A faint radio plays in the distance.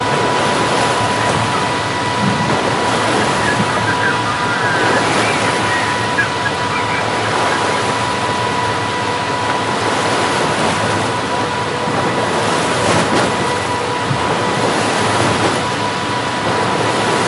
3.2s 8.2s

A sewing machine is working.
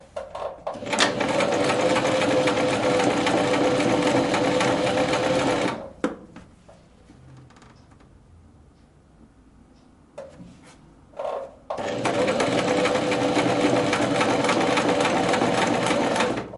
0.0s 6.2s, 11.1s 16.6s

